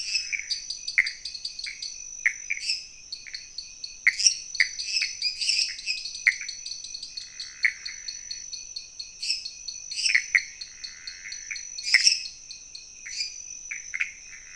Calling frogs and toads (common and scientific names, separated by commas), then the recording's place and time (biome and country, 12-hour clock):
dwarf tree frog (Dendropsophus nanus), Pithecopus azureus, lesser tree frog (Dendropsophus minutus)
Cerrado, Brazil, 11:15pm